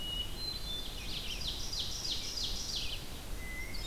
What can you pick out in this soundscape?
Hermit Thrush, Red-eyed Vireo, Ovenbird